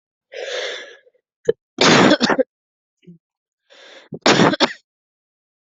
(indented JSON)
{
  "expert_labels": [
    {
      "quality": "good",
      "cough_type": "dry",
      "dyspnea": false,
      "wheezing": false,
      "stridor": false,
      "choking": false,
      "congestion": false,
      "nothing": true,
      "diagnosis": "upper respiratory tract infection",
      "severity": "mild"
    }
  ],
  "age": 33,
  "gender": "female",
  "respiratory_condition": false,
  "fever_muscle_pain": false,
  "status": "symptomatic"
}